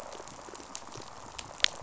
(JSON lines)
{"label": "biophony, rattle response", "recorder": "SoundTrap 500"}